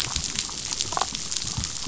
{"label": "biophony, damselfish", "recorder": "SoundTrap 500"}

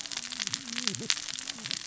{"label": "biophony, cascading saw", "recorder": "SoundTrap 600 or HydroMoth"}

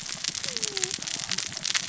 {"label": "biophony, cascading saw", "recorder": "SoundTrap 600 or HydroMoth"}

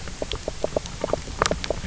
{"label": "biophony, knock croak", "recorder": "SoundTrap 300"}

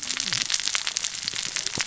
{"label": "biophony, cascading saw", "recorder": "SoundTrap 600 or HydroMoth"}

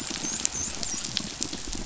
{"label": "biophony, dolphin", "recorder": "SoundTrap 500"}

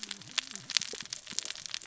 {"label": "biophony, cascading saw", "recorder": "SoundTrap 600 or HydroMoth"}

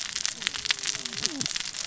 {"label": "biophony, cascading saw", "recorder": "SoundTrap 600 or HydroMoth"}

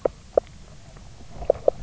{"label": "biophony, knock croak", "recorder": "SoundTrap 300"}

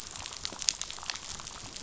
{"label": "biophony, damselfish", "recorder": "SoundTrap 500"}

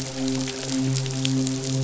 {"label": "biophony, midshipman", "recorder": "SoundTrap 500"}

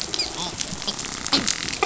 {"label": "biophony, dolphin", "recorder": "SoundTrap 500"}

